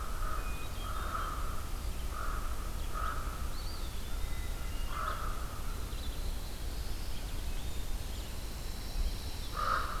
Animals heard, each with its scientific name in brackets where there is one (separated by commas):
Hermit Thrush (Catharus guttatus), Black-throated Blue Warbler (Setophaga caerulescens), Pine Warbler (Setophaga pinus), Eastern Wood-Pewee (Contopus virens), Red-eyed Vireo (Vireo olivaceus), Common Raven (Corvus corax)